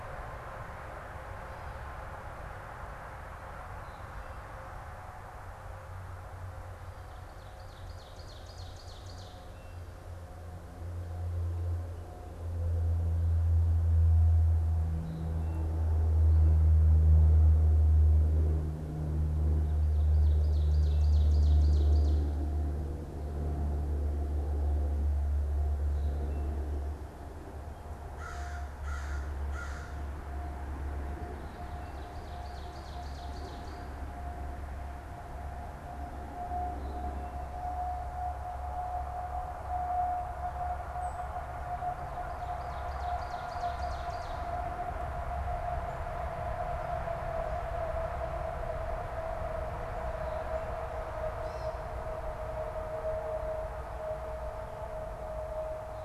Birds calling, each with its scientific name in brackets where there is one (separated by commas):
unidentified bird, Gray Catbird (Dumetella carolinensis), Ovenbird (Seiurus aurocapilla), American Crow (Corvus brachyrhynchos)